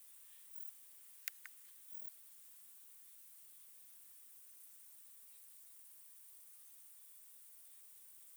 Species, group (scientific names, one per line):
Rhacocleis germanica
Orthoptera